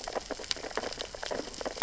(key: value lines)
label: biophony, sea urchins (Echinidae)
recorder: SoundTrap 600 or HydroMoth